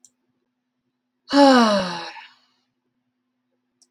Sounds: Sigh